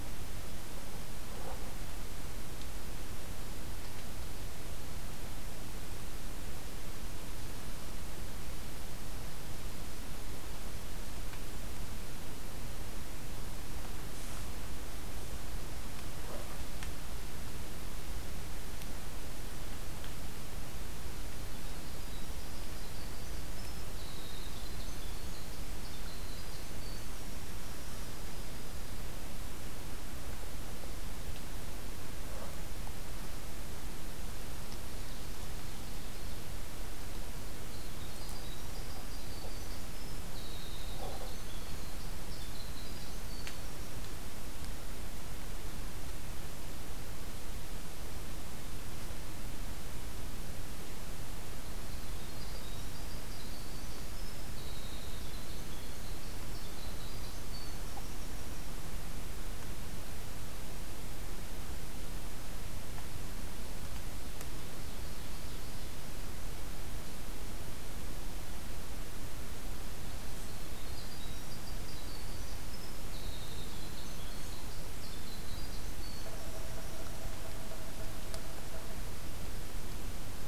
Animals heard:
Winter Wren (Troglodytes hiemalis), Yellow-bellied Sapsucker (Sphyrapicus varius), Ovenbird (Seiurus aurocapilla)

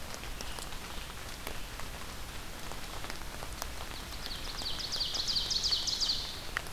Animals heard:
Ovenbird (Seiurus aurocapilla)

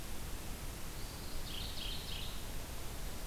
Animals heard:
Mourning Warbler (Geothlypis philadelphia)

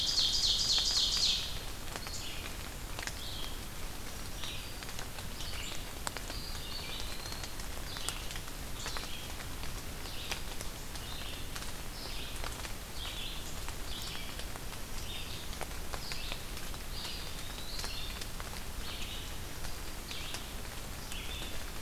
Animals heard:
Red-eyed Vireo (Vireo olivaceus), Black-throated Green Warbler (Setophaga virens), Ovenbird (Seiurus aurocapilla), Eastern Wood-Pewee (Contopus virens)

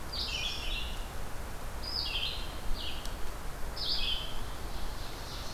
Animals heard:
Red-eyed Vireo (Vireo olivaceus), Ovenbird (Seiurus aurocapilla)

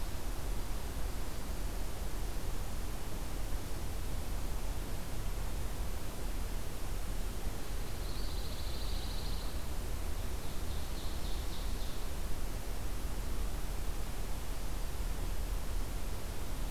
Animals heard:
Ovenbird (Seiurus aurocapilla), Pine Warbler (Setophaga pinus)

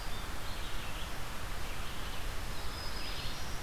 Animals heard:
Black-throated Green Warbler (Setophaga virens), Red-eyed Vireo (Vireo olivaceus)

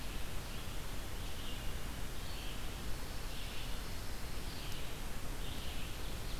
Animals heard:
Red-eyed Vireo (Vireo olivaceus), Pine Warbler (Setophaga pinus)

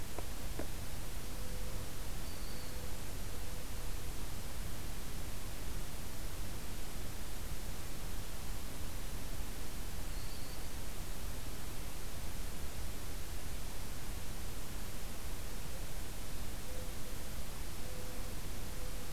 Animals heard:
Mourning Dove (Zenaida macroura), Black-throated Green Warbler (Setophaga virens)

